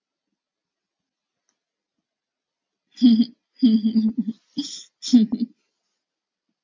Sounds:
Laughter